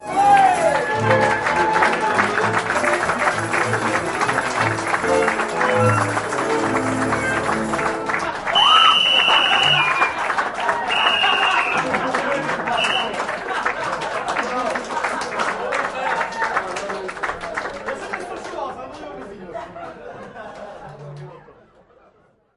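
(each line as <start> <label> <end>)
0.0 People cheering happily at the end of an event. 22.6
0.0 People clapping their hands at the end of an event. 22.6
0.0 One person cheering loudly at a musical event. 0.8
8.4 Whistling sounds inside an event hall. 11.8
10.5 A person yells happily at the end of a folklore event. 10.9
11.8 People laughing at a folklore event. 15.8
12.6 Whistling sounds inside an event hall. 13.1
15.9 A person yells happily at the end of a folklore event. 16.7
16.7 People are clapping slowly at the end of an event. 17.9
18.1 One person is speaking. 19.7
19.7 People laughing softly at a folklore event. 22.6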